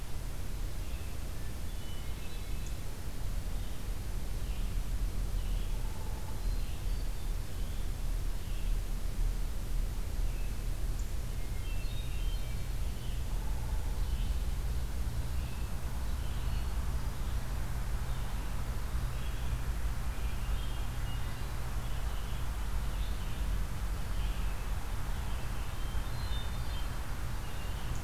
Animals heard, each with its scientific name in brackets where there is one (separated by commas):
Hairy Woodpecker (Dryobates villosus), Red-eyed Vireo (Vireo olivaceus), Hermit Thrush (Catharus guttatus)